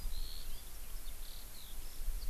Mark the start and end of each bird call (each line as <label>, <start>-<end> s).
Eurasian Skylark (Alauda arvensis), 0.0-2.3 s